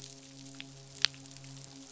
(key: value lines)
label: biophony, midshipman
recorder: SoundTrap 500